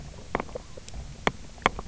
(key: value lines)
label: biophony, knock croak
recorder: SoundTrap 300